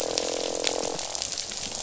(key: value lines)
label: biophony, croak
recorder: SoundTrap 500